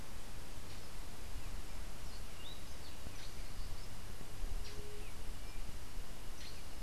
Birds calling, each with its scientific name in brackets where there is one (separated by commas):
White-tipped Dove (Leptotila verreauxi), Cabanis's Wren (Cantorchilus modestus), Black-headed Saltator (Saltator atriceps)